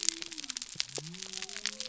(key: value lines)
label: biophony
recorder: SoundTrap 300